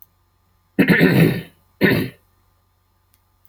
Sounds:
Throat clearing